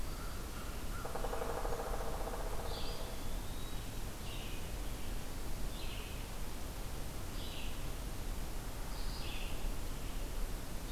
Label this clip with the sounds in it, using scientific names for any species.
Corvus brachyrhynchos, Dryocopus pileatus, Contopus virens, Vireo olivaceus